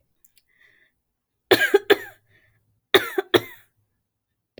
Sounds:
Cough